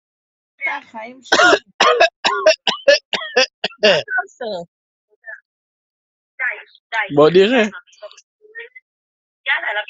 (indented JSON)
{
  "expert_labels": [
    {
      "quality": "good",
      "cough_type": "unknown",
      "dyspnea": false,
      "wheezing": false,
      "stridor": false,
      "choking": false,
      "congestion": false,
      "nothing": true,
      "diagnosis": "upper respiratory tract infection",
      "severity": "mild"
    }
  ],
  "age": 27,
  "gender": "male",
  "respiratory_condition": false,
  "fever_muscle_pain": false,
  "status": "healthy"
}